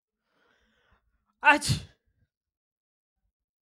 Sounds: Sneeze